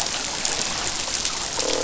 {"label": "biophony, croak", "recorder": "SoundTrap 500"}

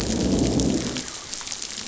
{"label": "biophony, growl", "recorder": "SoundTrap 500"}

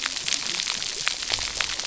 {"label": "biophony, cascading saw", "recorder": "SoundTrap 300"}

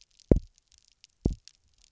{"label": "biophony, double pulse", "recorder": "SoundTrap 300"}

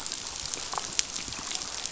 {"label": "biophony, damselfish", "recorder": "SoundTrap 500"}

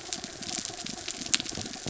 {"label": "anthrophony, mechanical", "recorder": "SoundTrap 300"}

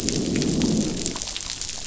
{"label": "biophony, growl", "recorder": "SoundTrap 500"}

